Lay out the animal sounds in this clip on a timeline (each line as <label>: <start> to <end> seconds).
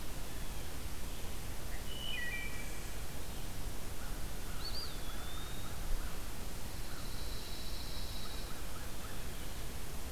Wood Thrush (Hylocichla mustelina): 1.7 to 2.9 seconds
American Crow (Corvus brachyrhynchos): 3.8 to 6.4 seconds
Eastern Wood-Pewee (Contopus virens): 4.5 to 5.9 seconds
Pine Warbler (Setophaga pinus): 6.6 to 8.6 seconds
American Crow (Corvus brachyrhynchos): 8.0 to 9.3 seconds